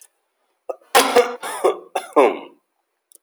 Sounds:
Cough